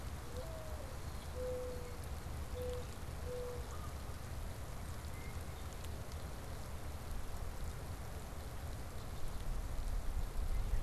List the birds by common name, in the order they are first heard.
Mourning Dove, Canada Goose, Red-winged Blackbird